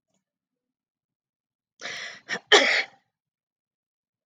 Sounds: Sneeze